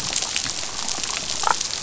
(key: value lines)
label: biophony, damselfish
recorder: SoundTrap 500